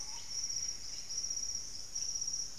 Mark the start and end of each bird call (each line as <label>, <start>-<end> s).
Plumbeous Antbird (Myrmelastes hyperythrus), 0.0-1.5 s
Blue-headed Parrot (Pionus menstruus), 0.0-2.6 s